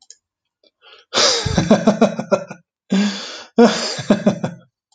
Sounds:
Laughter